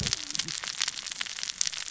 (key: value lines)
label: biophony, cascading saw
recorder: SoundTrap 600 or HydroMoth